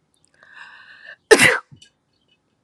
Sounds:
Sneeze